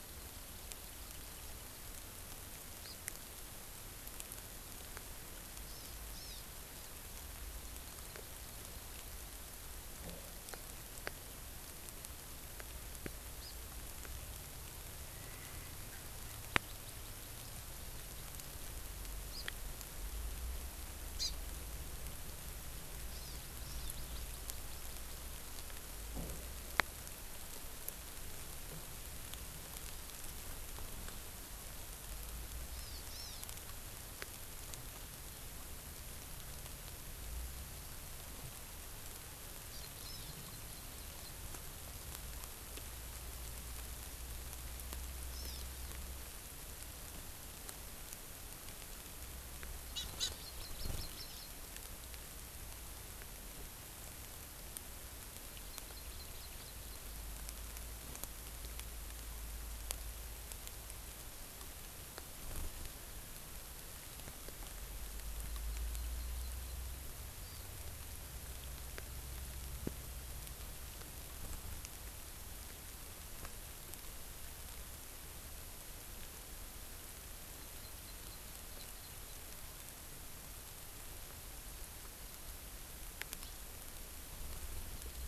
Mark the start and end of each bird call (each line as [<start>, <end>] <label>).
[5.65, 6.45] Hawaii Amakihi (Chlorodrepanis virens)
[16.65, 17.55] Hawaii Amakihi (Chlorodrepanis virens)
[19.35, 19.45] Hawaii Amakihi (Chlorodrepanis virens)
[21.15, 21.35] Hawaii Amakihi (Chlorodrepanis virens)
[23.15, 23.35] Hawaii Amakihi (Chlorodrepanis virens)
[23.85, 25.25] Hawaii Amakihi (Chlorodrepanis virens)
[32.75, 33.45] Hawaii Amakihi (Chlorodrepanis virens)
[39.75, 41.35] Hawaii Amakihi (Chlorodrepanis virens)
[45.35, 45.65] Hawaii Amakihi (Chlorodrepanis virens)
[49.95, 51.55] Hawaii Amakihi (Chlorodrepanis virens)
[55.75, 57.05] Hawaii Amakihi (Chlorodrepanis virens)
[65.35, 66.75] Hawaii Amakihi (Chlorodrepanis virens)
[67.45, 67.65] Hawaii Amakihi (Chlorodrepanis virens)
[77.55, 79.45] Hawaii Amakihi (Chlorodrepanis virens)